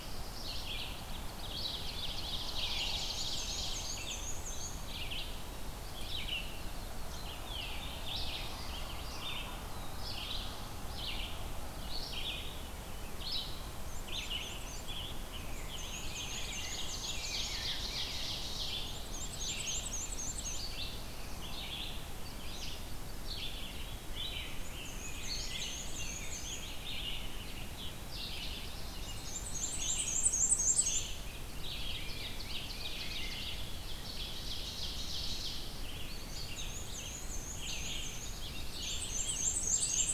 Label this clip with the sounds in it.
Black-throated Blue Warbler, Red-eyed Vireo, Ovenbird, Black-and-white Warbler, Veery, Rose-breasted Grosbeak, Eastern Wood-Pewee